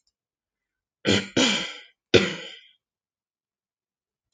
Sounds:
Throat clearing